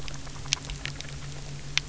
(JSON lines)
{"label": "anthrophony, boat engine", "recorder": "SoundTrap 300"}